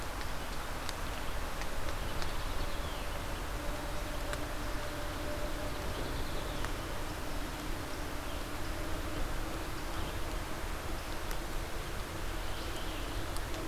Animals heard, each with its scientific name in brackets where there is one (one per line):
unidentified call